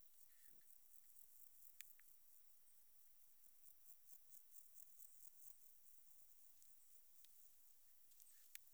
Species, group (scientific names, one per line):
Pseudochorthippus parallelus
Orthoptera